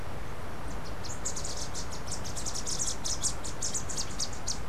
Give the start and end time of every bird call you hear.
[0.52, 4.68] unidentified bird

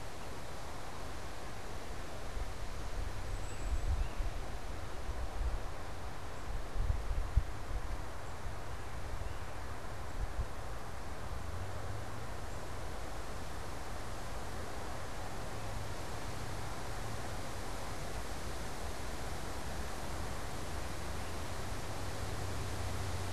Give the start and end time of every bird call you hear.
[3.01, 4.21] Cedar Waxwing (Bombycilla cedrorum)

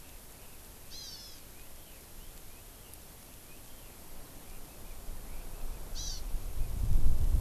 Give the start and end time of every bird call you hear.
[0.00, 4.00] Red-billed Leiothrix (Leiothrix lutea)
[0.90, 1.40] Hawaii Amakihi (Chlorodrepanis virens)
[6.00, 6.20] Hawaii Amakihi (Chlorodrepanis virens)

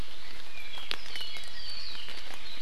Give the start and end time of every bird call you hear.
[0.40, 2.10] Apapane (Himatione sanguinea)

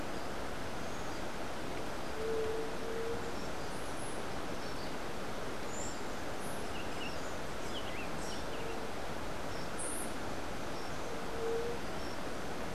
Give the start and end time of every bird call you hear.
[5.52, 8.62] Buff-throated Saltator (Saltator maximus)
[9.62, 10.22] White-eared Ground-Sparrow (Melozone leucotis)

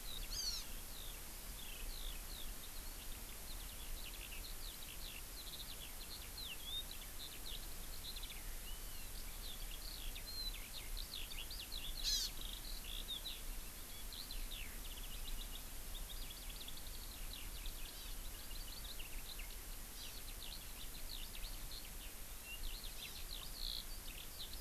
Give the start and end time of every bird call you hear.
[0.00, 24.60] Eurasian Skylark (Alauda arvensis)
[0.30, 0.60] Hawaii Amakihi (Chlorodrepanis virens)
[8.60, 9.10] Hawaii Amakihi (Chlorodrepanis virens)
[12.00, 12.30] Hawaii Amakihi (Chlorodrepanis virens)
[17.90, 18.10] Hawaii Amakihi (Chlorodrepanis virens)
[19.90, 20.20] Hawaii Amakihi (Chlorodrepanis virens)
[23.00, 23.20] Hawaii Amakihi (Chlorodrepanis virens)

